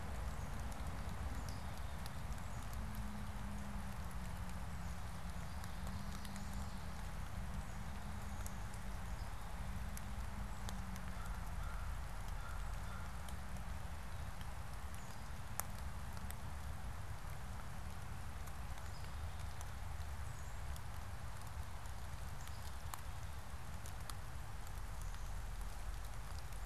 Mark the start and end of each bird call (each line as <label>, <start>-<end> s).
Black-capped Chickadee (Poecile atricapillus), 1.1-3.4 s
Black-capped Chickadee (Poecile atricapillus), 4.4-5.9 s
Chestnut-sided Warbler (Setophaga pensylvanica), 5.6-7.2 s
American Crow (Corvus brachyrhynchos), 10.9-13.3 s
Black-capped Chickadee (Poecile atricapillus), 14.6-15.8 s
Black-capped Chickadee (Poecile atricapillus), 18.2-20.8 s